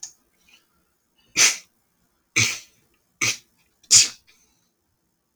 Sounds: Sneeze